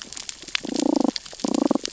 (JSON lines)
{"label": "biophony, damselfish", "recorder": "SoundTrap 600 or HydroMoth"}